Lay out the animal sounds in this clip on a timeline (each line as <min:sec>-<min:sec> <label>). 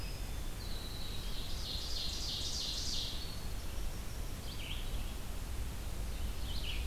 0:00.0-0:04.6 Winter Wren (Troglodytes hiemalis)
0:00.0-0:06.9 Red-eyed Vireo (Vireo olivaceus)
0:00.6-0:03.4 Ovenbird (Seiurus aurocapilla)